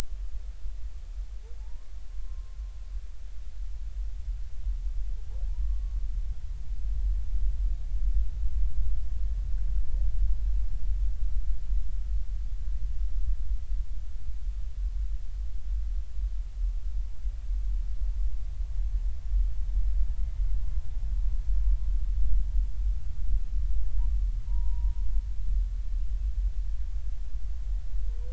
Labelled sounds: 1.6	2.6	humpback whale, 0.80 to 1.2 kHz
5.5	5.9	humpback whale, 0.80 to 1.2 kHz
20.6	20.9	humpback whale, 0.99 to 1.1 kHz
24.5	25.0	humpback whale, 0.90 to 1.0 kHz

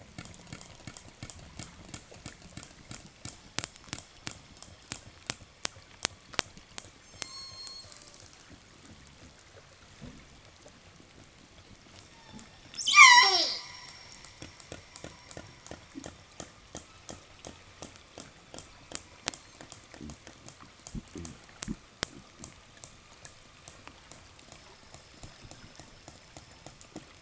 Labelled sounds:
7.1	8.4	killer whale, southern resident, 0 to 8.0 kHz
11.9	14.2	killer whale, southern resident, 0.02 to 8.0 kHz
16.2	27.2	killer whale, southern resident, 0.87 to 5.9 kHz

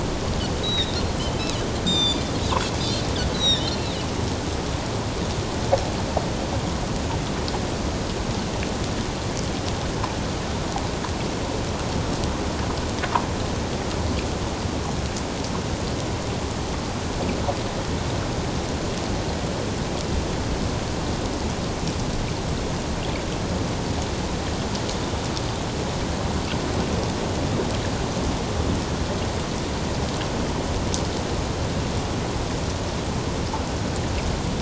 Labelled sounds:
0.6	3.0	Pacific white-sided dolphin, 2.3 to 7.4 kHz
3.3	3.9	Pacific white-sided dolphin, 3.4 to 6.0 kHz

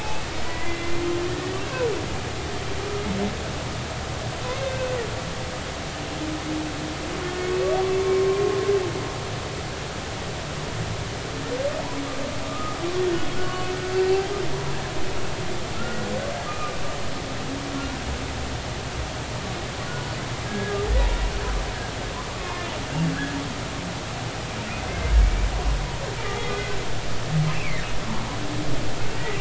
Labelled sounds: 0.0	1.9	humpback whale, 0.96 to 2.7 kHz
4.6	4.9	humpback whale, 2.5 to 2.7 kHz
12.5	13.7	humpback whale, 1.1 to 1.5 kHz
14.0	14.2	humpback whale, 4.1 to 4.3 kHz
15.7	16.1	humpback whale, 1.3 to 1.5 kHz
16.5	16.8	humpback whale, 1.2 to 1.3 kHz
20.5	20.8	humpback whale, 1.6 to 1.7 kHz
22.3	22.6	humpback whale, 0.86 to 1.2 kHz
24.9	25.5	humpback whale, 2.0 to 2.4 kHz
26.2	26.8	humpback whale, 1.4 to 2.1 kHz
27.5	27.8	humpback whale, 2.0 to 2.8 kHz

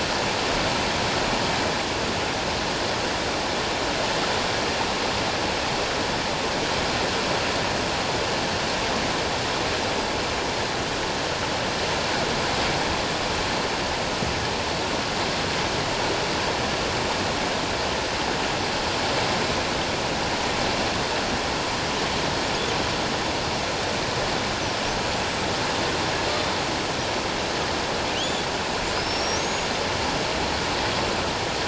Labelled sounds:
28.2	28.4	killer whale, 2.7 to 3.6 kHz
29.0	29.7	killer whale, 5.3 to 6.8 kHz

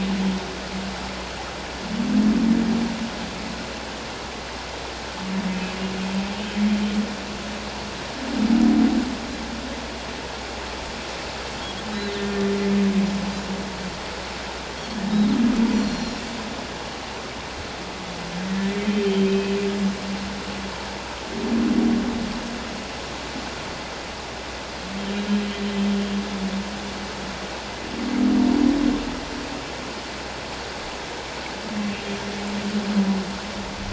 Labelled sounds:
15.1	15.4	Pacific white-sided dolphin, 3.6 to 4.0 kHz
15.7	16.1	Pacific white-sided dolphin, 5.5 to 7.4 kHz
15.7	16.2	humpback whale, 4.1 to 4.4 kHz
18.4	19.6	humpback whale, 1.8 to 3.2 kHz

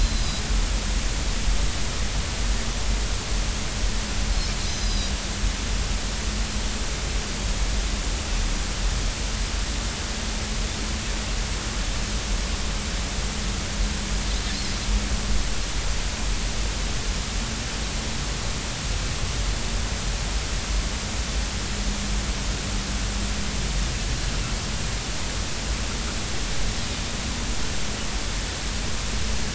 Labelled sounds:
0.0	0.2	Pacific white-sided dolphin, 4.0 to 4.1 kHz
1.2	1.4	Pacific white-sided dolphin, 4.9 to 5.1 kHz
4.7	5.1	Pacific white-sided dolphin, 3.8 to 6.2 kHz

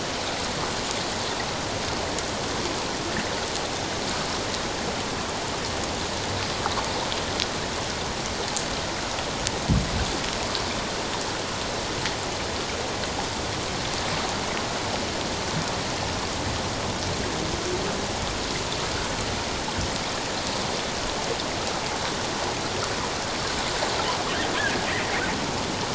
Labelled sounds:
24.6	24.9	humpback whale, 1.5 to 1.8 kHz

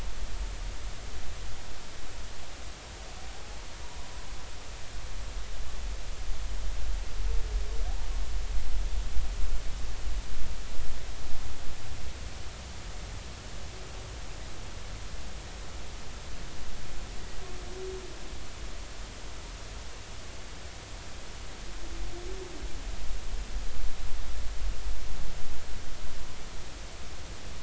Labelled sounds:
3.8	4.1	humpback whale, 0.93 to 1.1 kHz

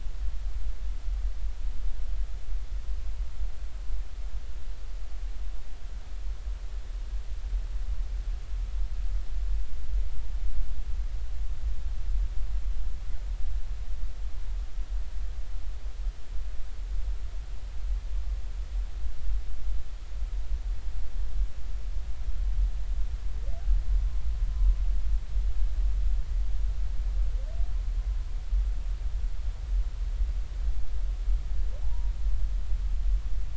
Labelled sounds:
31.8	32.1	humpback whale, 0.80 to 0.99 kHz

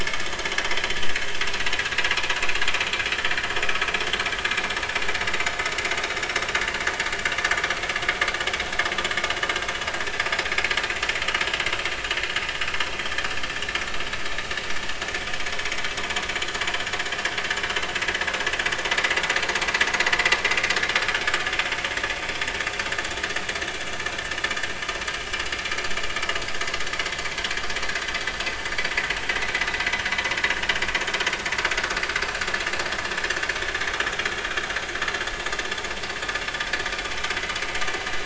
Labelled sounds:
3.2	3.5	vessel noise, 1.7 to 1.9 kHz

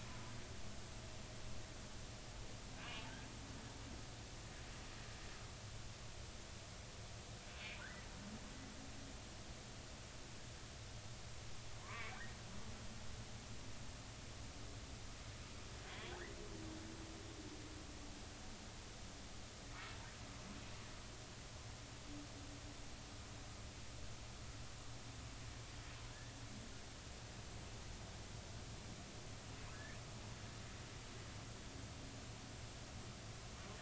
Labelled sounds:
2.8	3.0	humpback whale, 2.7 to 2.9 kHz
7.8	8.1	humpback whale, 1.3 to 2.0 kHz
11.8	12.2	humpback whale, 0.93 to 2.4 kHz
15.9	16.3	humpback whale, 1.4 to 3.6 kHz
29.7	30.0	humpback whale, 1.6 to 1.9 kHz

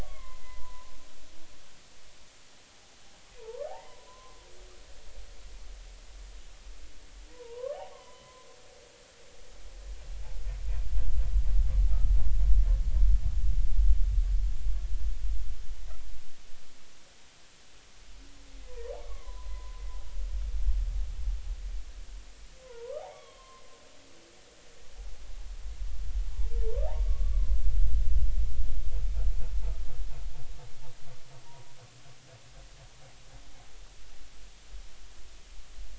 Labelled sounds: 0.0	0.9	humpback whale, 0.93 to 2.2 kHz
3.4	4.4	humpback whale, 0.80 to 2.1 kHz
7.3	8.5	humpback whale, 0.80 to 1.2 kHz
18.6	19.8	humpback whale, 0.93 to 2.3 kHz
22.6	23.6	humpback whale, 0.86 to 3.5 kHz
26.3	26.8	humpback whale, 0.80 to 1.0 kHz
27.0	27.6	humpback whale, 0.99 to 1.2 kHz
31.4	31.8	humpback whale, 0.90 to 1.0 kHz

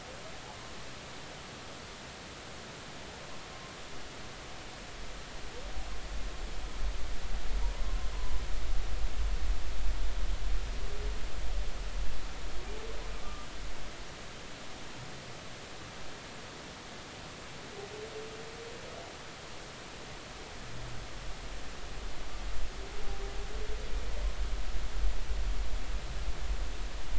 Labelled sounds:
8.1	8.4	humpback whale, 0.96 to 1.1 kHz
13.2	13.5	humpback whale, 1.1 to 1.2 kHz

